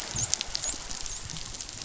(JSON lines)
{"label": "biophony, dolphin", "recorder": "SoundTrap 500"}